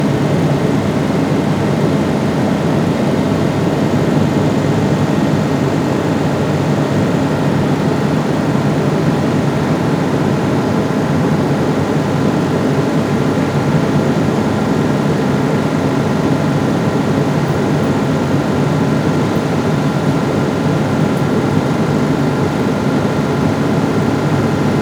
Are there animals here?
no